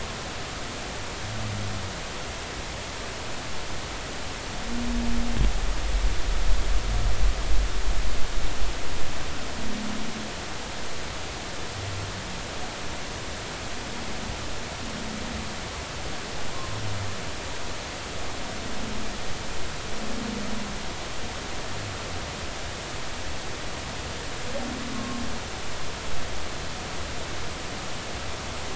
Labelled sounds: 24.9	25.2	humpback whale, 1.0 to 1.1 kHz

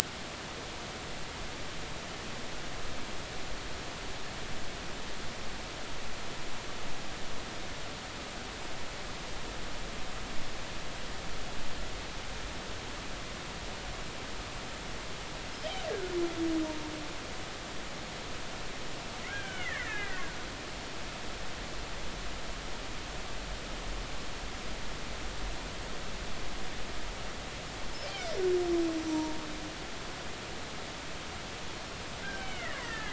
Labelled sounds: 15.9	16.2	killer whale, Bigg's (transient), 1.4 to 1.7 kHz
19.3	20.2	killer whale, Bigg's (transient), 1.3 to 3.3 kHz
28.0	28.3	killer whale, Bigg's (transient), 2.1 to 2.5 kHz
29.1	29.4	killer whale, Bigg's (transient), 0.90 to 0.99 kHz
32.2	33.1	killer whale, Bigg's (transient), 1.5 to 3.1 kHz

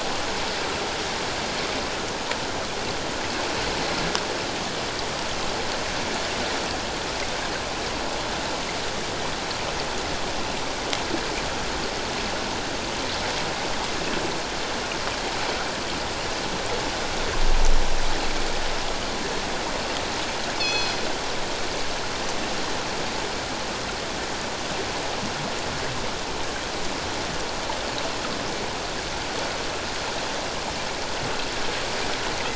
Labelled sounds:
20.6	21.0	killer whale, northern resident, G clan, call N24ii, 2.5 to 6.0 kHz

